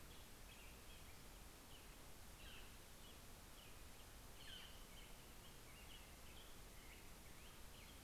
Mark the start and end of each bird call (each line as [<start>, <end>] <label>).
[0.00, 8.03] Black-headed Grosbeak (Pheucticus melanocephalus)
[1.96, 2.85] Northern Flicker (Colaptes auratus)
[3.96, 4.86] Northern Flicker (Colaptes auratus)